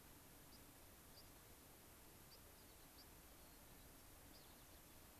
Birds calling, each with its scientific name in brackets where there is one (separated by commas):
unidentified bird, White-crowned Sparrow (Zonotrichia leucophrys)